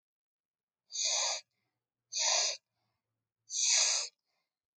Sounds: Sniff